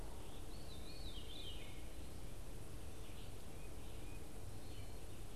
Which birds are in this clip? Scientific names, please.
Catharus fuscescens